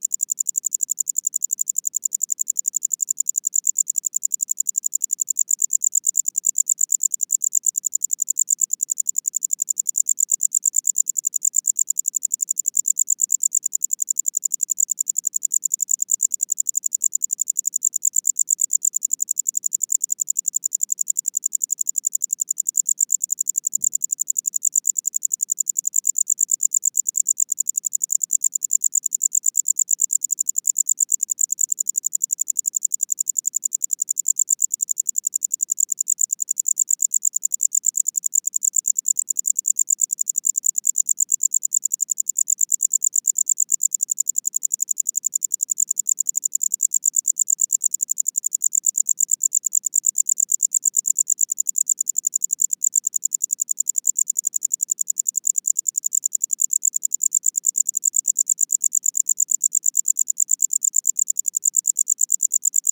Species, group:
Gryllodes sigillatus
Orthoptera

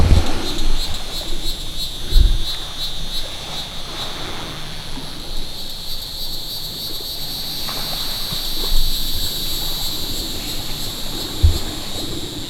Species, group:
Neocicada hieroglyphica
Cicadidae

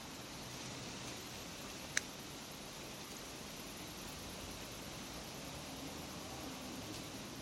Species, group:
Tettigonia viridissima
Orthoptera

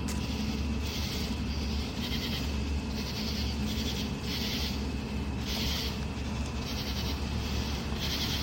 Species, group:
Pterophylla camellifolia
Orthoptera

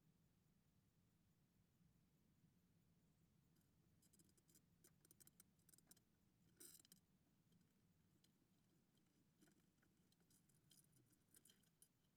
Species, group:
Pholidoptera littoralis
Orthoptera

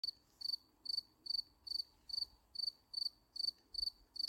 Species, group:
Gryllus campestris
Orthoptera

